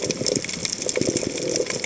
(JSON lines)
{"label": "biophony", "recorder": "HydroMoth"}